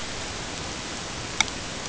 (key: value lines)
label: ambient
recorder: HydroMoth